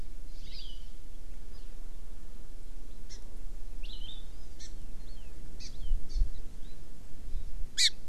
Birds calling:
Hawaii Amakihi (Chlorodrepanis virens)

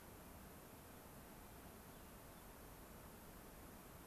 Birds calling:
Hermit Thrush (Catharus guttatus)

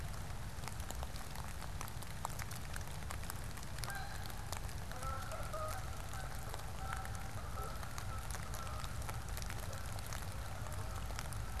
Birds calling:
Canada Goose (Branta canadensis)

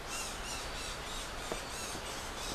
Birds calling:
Red-crowned Ant-Tanager (Habia rubica)

